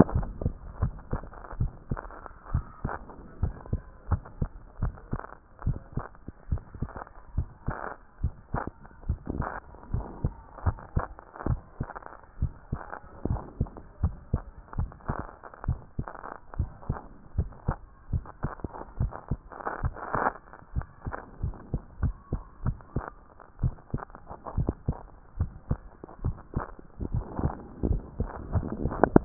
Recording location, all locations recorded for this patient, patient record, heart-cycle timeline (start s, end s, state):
tricuspid valve (TV)
pulmonary valve (PV)+tricuspid valve (TV)+mitral valve (MV)
#Age: Child
#Sex: Female
#Height: 121.0 cm
#Weight: 20.9 kg
#Pregnancy status: False
#Murmur: Absent
#Murmur locations: nan
#Most audible location: nan
#Systolic murmur timing: nan
#Systolic murmur shape: nan
#Systolic murmur grading: nan
#Systolic murmur pitch: nan
#Systolic murmur quality: nan
#Diastolic murmur timing: nan
#Diastolic murmur shape: nan
#Diastolic murmur grading: nan
#Diastolic murmur pitch: nan
#Diastolic murmur quality: nan
#Outcome: Normal
#Campaign: 2014 screening campaign
0.12	0.28	S1
0.28	0.44	systole
0.44	0.54	S2
0.54	0.80	diastole
0.80	0.94	S1
0.94	1.12	systole
1.12	1.22	S2
1.22	1.58	diastole
1.58	1.72	S1
1.72	1.90	systole
1.90	2.00	S2
2.00	2.52	diastole
2.52	2.64	S1
2.64	2.84	systole
2.84	2.92	S2
2.92	3.42	diastole
3.42	3.54	S1
3.54	3.72	systole
3.72	3.80	S2
3.80	4.10	diastole
4.10	4.22	S1
4.22	4.40	systole
4.40	4.50	S2
4.50	4.80	diastole
4.80	4.94	S1
4.94	5.12	systole
5.12	5.22	S2
5.22	5.64	diastole
5.64	5.78	S1
5.78	5.96	systole
5.96	6.04	S2
6.04	6.50	diastole
6.50	6.62	S1
6.62	6.80	systole
6.80	6.90	S2
6.90	7.36	diastole
7.36	7.48	S1
7.48	7.66	systole
7.66	7.76	S2
7.76	8.22	diastole
8.22	8.34	S1
8.34	8.52	systole
8.52	8.62	S2
8.62	9.08	diastole
9.08	9.18	S1
9.18	9.36	systole
9.36	9.46	S2
9.46	9.92	diastole
9.92	10.06	S1
10.06	10.22	systole
10.22	10.32	S2
10.32	10.64	diastole
10.64	10.76	S1
10.76	10.94	systole
10.94	11.04	S2
11.04	11.46	diastole
11.46	11.60	S1
11.60	11.80	systole
11.80	11.88	S2
11.88	12.40	diastole
12.40	12.52	S1
12.52	12.72	systole
12.72	12.80	S2
12.80	13.28	diastole
13.28	13.42	S1
13.42	13.60	systole
13.60	13.68	S2
13.68	14.02	diastole
14.02	14.14	S1
14.14	14.32	systole
14.32	14.42	S2
14.42	14.78	diastole
14.78	14.90	S1
14.90	15.08	systole
15.08	15.18	S2
15.18	15.66	diastole
15.66	15.78	S1
15.78	15.98	systole
15.98	16.06	S2
16.06	16.58	diastole
16.58	16.70	S1
16.70	16.88	systole
16.88	16.98	S2
16.98	17.36	diastole
17.36	17.50	S1
17.50	17.66	systole
17.66	17.76	S2
17.76	18.12	diastole
18.12	18.24	S1
18.24	18.42	systole
18.42	18.52	S2
18.52	18.98	diastole
18.98	19.12	S1
19.12	19.30	systole
19.30	19.40	S2
19.40	19.82	diastole
19.82	19.94	S1
19.94	20.16	systole
20.16	20.26	S2
20.26	20.74	diastole
20.74	20.86	S1
20.86	21.06	systole
21.06	21.14	S2
21.14	21.42	diastole
21.42	21.54	S1
21.54	21.72	systole
21.72	21.82	S2
21.82	22.02	diastole
22.02	22.14	S1
22.14	22.32	systole
22.32	22.42	S2
22.42	22.64	diastole
22.64	22.76	S1
22.76	22.94	systole
22.94	23.04	S2
23.04	23.62	diastole
23.62	23.74	S1
23.74	23.92	systole
23.92	24.02	S2
24.02	24.56	diastole
24.56	24.72	S1
24.72	24.88	systole
24.88	24.96	S2
24.96	25.38	diastole
25.38	25.50	S1
25.50	25.70	systole
25.70	25.80	S2
25.80	26.24	diastole
26.24	26.36	S1
26.36	26.54	systole
26.54	26.64	S2
26.64	27.10	diastole
27.10	27.26	S1
27.26	27.42	systole
27.42	27.54	S2
27.54	27.84	diastole
27.84	28.02	S1
28.02	28.18	systole
28.18	28.30	S2
28.30	28.82	diastole
28.82	28.94	S1
28.94	29.12	systole
29.12	29.24	S2
29.24	29.25	diastole